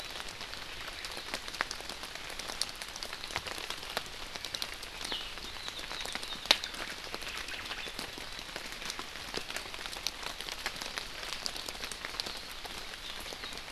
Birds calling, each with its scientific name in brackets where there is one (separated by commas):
Omao (Myadestes obscurus), Hawaii Akepa (Loxops coccineus)